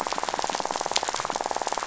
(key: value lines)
label: biophony, rattle
recorder: SoundTrap 500